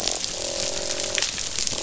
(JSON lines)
{"label": "biophony, croak", "recorder": "SoundTrap 500"}